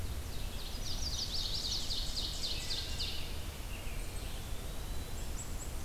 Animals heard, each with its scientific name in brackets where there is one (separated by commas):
Wood Thrush (Hylocichla mustelina), American Robin (Turdus migratorius), Ovenbird (Seiurus aurocapilla), Eastern Wood-Pewee (Contopus virens), Chestnut-sided Warbler (Setophaga pensylvanica)